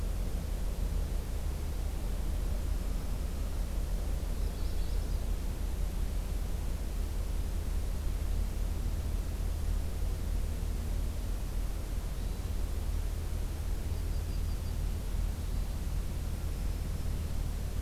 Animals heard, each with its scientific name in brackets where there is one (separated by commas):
Magnolia Warbler (Setophaga magnolia), Yellow-rumped Warbler (Setophaga coronata), Hermit Thrush (Catharus guttatus), Black-throated Green Warbler (Setophaga virens)